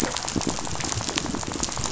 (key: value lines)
label: biophony, rattle
recorder: SoundTrap 500